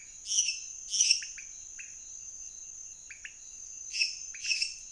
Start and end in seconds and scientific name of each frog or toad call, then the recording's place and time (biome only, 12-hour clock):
0.0	4.7	Leptodactylus podicipinus
0.2	1.6	Dendropsophus minutus
3.9	4.9	Dendropsophus minutus
Cerrado, 11:30pm